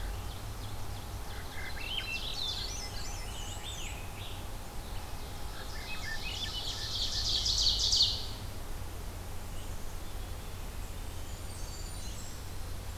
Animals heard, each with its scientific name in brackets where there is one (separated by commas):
Blackburnian Warbler (Setophaga fusca), Ovenbird (Seiurus aurocapilla), Black-throated Green Warbler (Setophaga virens), Swainson's Thrush (Catharus ustulatus), Scarlet Tanager (Piranga olivacea)